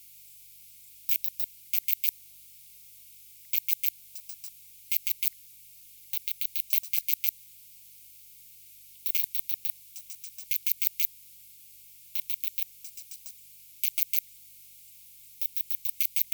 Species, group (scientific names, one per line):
Poecilimon zimmeri
Orthoptera